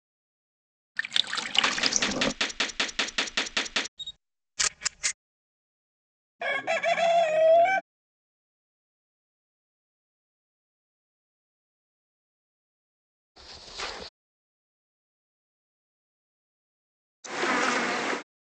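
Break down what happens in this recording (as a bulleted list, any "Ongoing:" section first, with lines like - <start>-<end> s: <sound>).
- 0.95-2.33 s: a sink filling or washing can be heard
- 1.6-3.88 s: gunfire is heard
- 3.96-5.14 s: the sound of a camera is audible
- 6.39-7.81 s: you can hear a chicken
- 13.35-14.09 s: you can hear wooden furniture moving
- 17.23-18.23 s: an insect is audible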